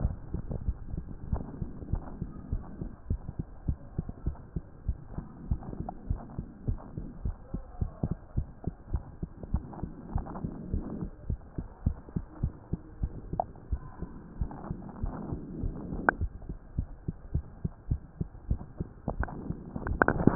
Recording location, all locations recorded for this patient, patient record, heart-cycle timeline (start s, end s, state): mitral valve (MV)
aortic valve (AV)+pulmonary valve (PV)+tricuspid valve (TV)+mitral valve (MV)
#Age: Adolescent
#Sex: Male
#Height: 142.0 cm
#Weight: 37.6 kg
#Pregnancy status: False
#Murmur: Absent
#Murmur locations: nan
#Most audible location: nan
#Systolic murmur timing: nan
#Systolic murmur shape: nan
#Systolic murmur grading: nan
#Systolic murmur pitch: nan
#Systolic murmur quality: nan
#Diastolic murmur timing: nan
#Diastolic murmur shape: nan
#Diastolic murmur grading: nan
#Diastolic murmur pitch: nan
#Diastolic murmur quality: nan
#Outcome: Normal
#Campaign: 2015 screening campaign
0.00	1.04	unannotated
1.04	1.06	S2
1.06	1.28	diastole
1.28	1.44	S1
1.44	1.58	systole
1.58	1.70	S2
1.70	1.88	diastole
1.88	2.04	S1
2.04	2.19	systole
2.19	2.30	S2
2.30	2.49	diastole
2.49	2.64	S1
2.64	2.79	systole
2.79	2.92	S2
2.92	3.07	diastole
3.07	3.22	S1
3.22	3.36	systole
3.36	3.46	S2
3.46	3.64	diastole
3.64	3.76	S1
3.76	3.94	systole
3.94	4.06	S2
4.06	4.22	diastole
4.22	4.36	S1
4.36	4.52	systole
4.52	4.64	S2
4.64	4.84	diastole
4.84	4.98	S1
4.98	5.14	systole
5.14	5.24	S2
5.24	5.44	diastole
5.44	5.60	S1
5.60	5.78	systole
5.78	5.88	S2
5.88	6.06	diastole
6.06	6.22	S1
6.22	6.36	systole
6.36	6.48	S2
6.48	6.65	diastole
6.65	6.80	S1
6.80	6.95	systole
6.95	7.06	S2
7.06	7.22	diastole
7.22	7.36	S1
7.36	7.51	systole
7.51	7.62	S2
7.62	7.79	diastole
7.79	7.90	S1
7.90	8.00	systole
8.00	8.16	S2
8.16	8.34	diastole
8.34	8.48	S1
8.48	8.64	systole
8.64	8.74	S2
8.74	8.89	diastole
8.89	9.04	S1
9.04	9.19	systole
9.19	9.32	S2
9.32	9.50	diastole
9.50	9.66	S1
9.66	9.80	systole
9.80	9.91	S2
9.91	10.11	diastole
10.11	10.26	S1
10.26	10.41	systole
10.41	10.54	S2
10.54	10.69	diastole
10.69	10.84	S1
10.84	10.99	systole
10.99	11.10	S2
11.10	11.26	diastole
11.26	11.40	S1
11.40	11.55	systole
11.55	11.66	S2
11.66	11.82	diastole
11.82	11.96	S1
11.96	12.12	systole
12.12	12.24	S2
12.24	12.40	diastole
12.40	12.54	S1
12.54	12.70	systole
12.70	12.80	S2
12.80	12.99	diastole
12.99	13.12	S1
13.12	13.29	systole
13.29	13.44	S2
13.44	13.67	diastole
13.67	13.80	S1
13.80	13.99	systole
13.99	14.12	S2
14.12	14.36	diastole
14.36	14.50	S1
14.50	14.66	systole
14.66	14.72	S2
14.72	20.35	unannotated